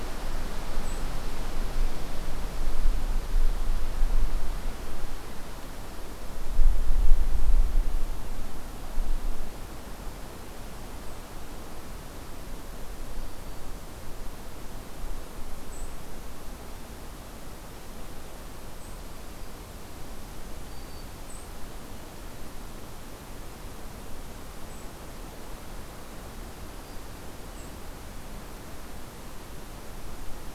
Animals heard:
Black-throated Green Warbler (Setophaga virens), White-throated Sparrow (Zonotrichia albicollis)

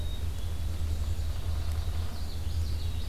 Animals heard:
Common Yellowthroat (Geothlypis trichas), Black-capped Chickadee (Poecile atricapillus), Red-eyed Vireo (Vireo olivaceus), Ovenbird (Seiurus aurocapilla)

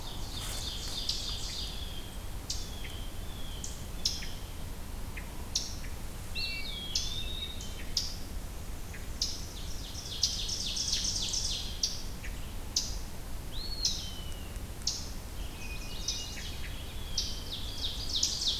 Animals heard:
Eastern Chipmunk (Tamias striatus), Hermit Thrush (Catharus guttatus), Ovenbird (Seiurus aurocapilla), Chestnut-sided Warbler (Setophaga pensylvanica), Blue Jay (Cyanocitta cristata), Eastern Wood-Pewee (Contopus virens)

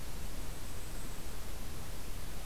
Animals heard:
Golden-crowned Kinglet (Regulus satrapa)

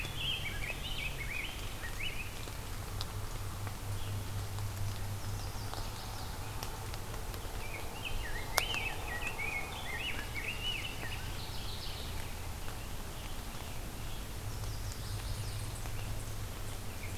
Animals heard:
Rose-breasted Grosbeak (Pheucticus ludovicianus), Chestnut-sided Warbler (Setophaga pensylvanica), Scarlet Tanager (Piranga olivacea), Mourning Warbler (Geothlypis philadelphia)

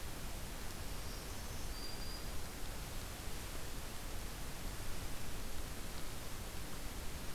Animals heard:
Black-throated Green Warbler (Setophaga virens)

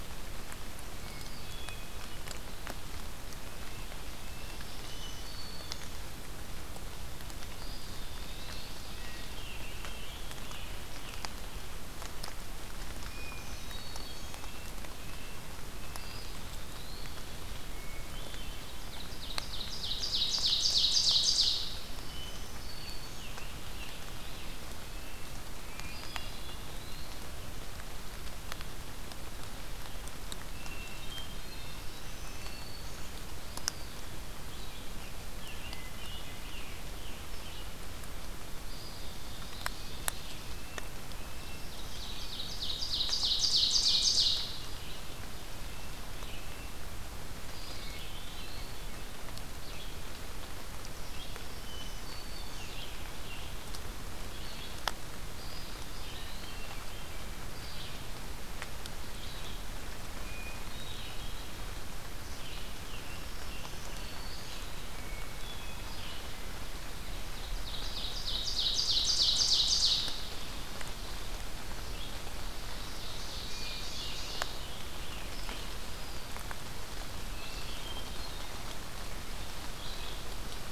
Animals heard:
Black-throated Green Warbler (Setophaga virens), Eastern Wood-Pewee (Contopus virens), Ovenbird (Seiurus aurocapilla), Scarlet Tanager (Piranga olivacea), Hermit Thrush (Catharus guttatus), Red-eyed Vireo (Vireo olivaceus), Red-breasted Nuthatch (Sitta canadensis)

